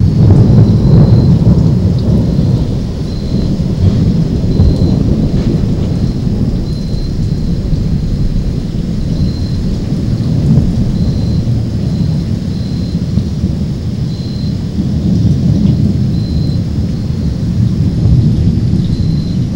What type of insect is making that noise in the background?
cricket